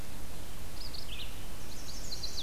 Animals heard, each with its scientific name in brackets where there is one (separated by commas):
Red-eyed Vireo (Vireo olivaceus), Chestnut-sided Warbler (Setophaga pensylvanica)